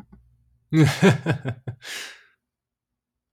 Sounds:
Laughter